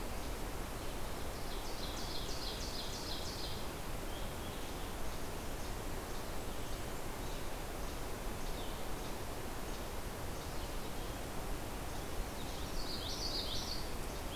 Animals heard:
Least Flycatcher (Empidonax minimus), Ovenbird (Seiurus aurocapilla), Common Yellowthroat (Geothlypis trichas)

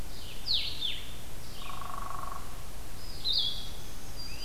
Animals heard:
Black-throated Green Warbler (Setophaga virens), Red-eyed Vireo (Vireo olivaceus), Hairy Woodpecker (Dryobates villosus), Blue-headed Vireo (Vireo solitarius)

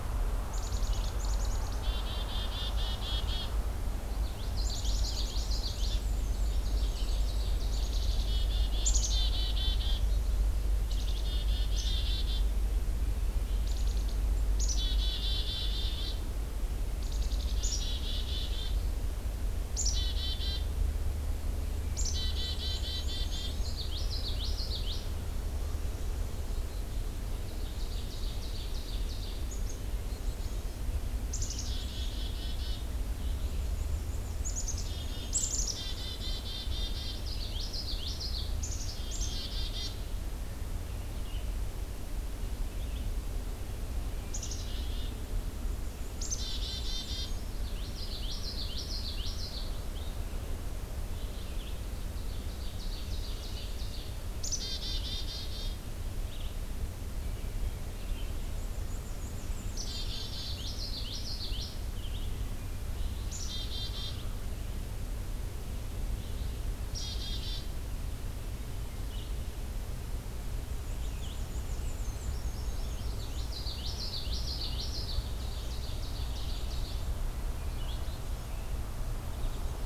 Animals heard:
Black-and-white Warbler (Mniotilta varia), Black-capped Chickadee (Poecile atricapillus), Common Yellowthroat (Geothlypis trichas), Ovenbird (Seiurus aurocapilla), Red-eyed Vireo (Vireo olivaceus)

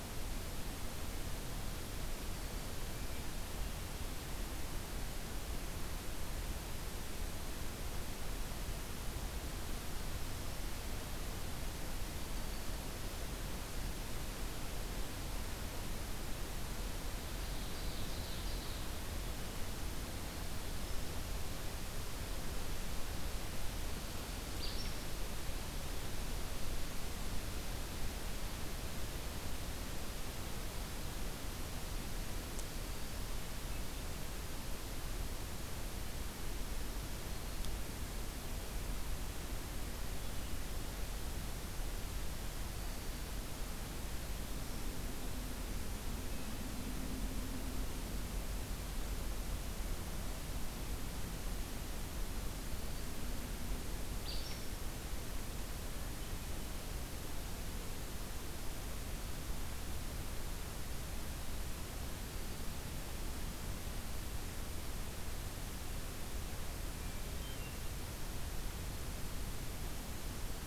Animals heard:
Ovenbird (Seiurus aurocapilla), Black-throated Green Warbler (Setophaga virens), Acadian Flycatcher (Empidonax virescens), Hermit Thrush (Catharus guttatus)

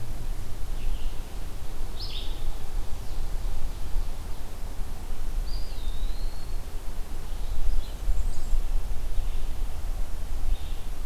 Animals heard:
Bay-breasted Warbler (Setophaga castanea), Ovenbird (Seiurus aurocapilla), Blue-headed Vireo (Vireo solitarius), Eastern Wood-Pewee (Contopus virens)

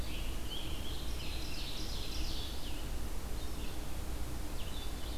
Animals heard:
Ovenbird (Seiurus aurocapilla), American Robin (Turdus migratorius), Red-eyed Vireo (Vireo olivaceus)

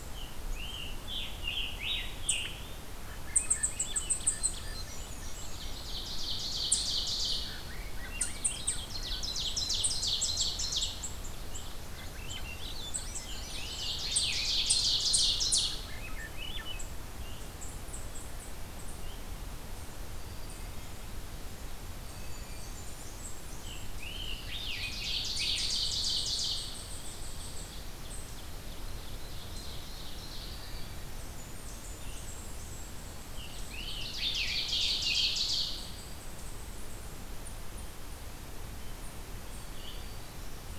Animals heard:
Ovenbird (Seiurus aurocapilla), Wood Thrush (Hylocichla mustelina), Black-throated Green Warbler (Setophaga virens), Scarlet Tanager (Piranga olivacea), Swainson's Thrush (Catharus ustulatus), unknown mammal, Blackburnian Warbler (Setophaga fusca)

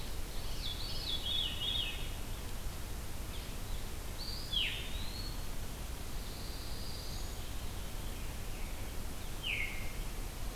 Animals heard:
Veery (Catharus fuscescens), Eastern Wood-Pewee (Contopus virens), Pine Warbler (Setophaga pinus)

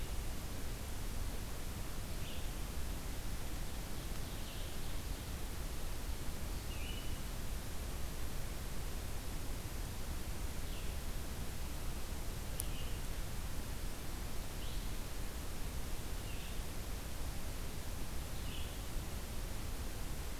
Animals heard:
Red-eyed Vireo (Vireo olivaceus), Ovenbird (Seiurus aurocapilla)

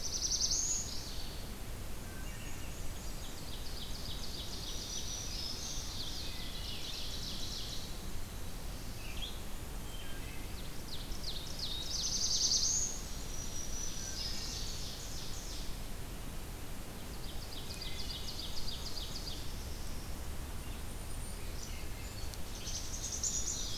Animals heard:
Black-and-white Warbler (Mniotilta varia), Black-capped Chickadee (Poecile atricapillus), Black-throated Blue Warbler (Setophaga caerulescens), Song Sparrow (Melospiza melodia), Golden-crowned Kinglet (Regulus satrapa), Wood Thrush (Hylocichla mustelina), Mourning Warbler (Geothlypis philadelphia), Red-eyed Vireo (Vireo olivaceus), Black-throated Green Warbler (Setophaga virens), Ovenbird (Seiurus aurocapilla)

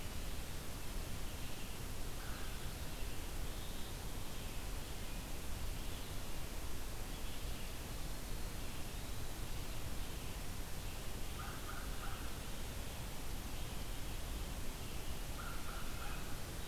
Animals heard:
Eastern Wood-Pewee (Contopus virens), American Crow (Corvus brachyrhynchos), Ovenbird (Seiurus aurocapilla)

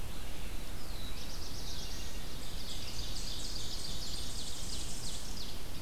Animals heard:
Tennessee Warbler (Leiothlypis peregrina), Ovenbird (Seiurus aurocapilla), Black-throated Blue Warbler (Setophaga caerulescens), Red-eyed Vireo (Vireo olivaceus)

